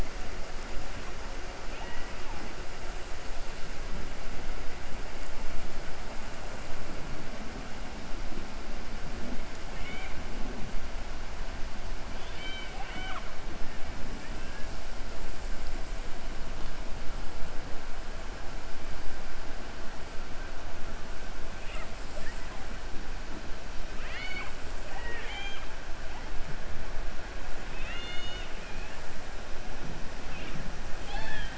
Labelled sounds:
9.6	10.2	killer whale, 1.5 to 3.9 kHz
12.1	13.3	killer whale, 0.72 to 4.6 kHz
14.1	14.7	killer whale, 1.6 to 2.7 kHz
23.9	25.7	killer whale, 0.45 to 5.8 kHz
27.7	28.5	killer whale, 1.4 to 6.6 kHz
30.9	31.5	killer whale, 0.45 to 5.2 kHz

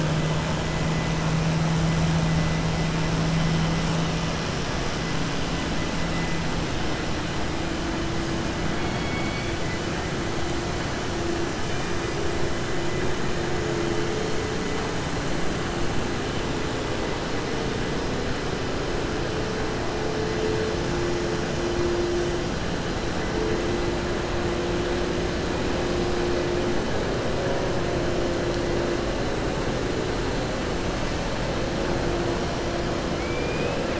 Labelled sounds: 33.1	33.9	killer whale, southern resident, 1.7 to 3.0 kHz

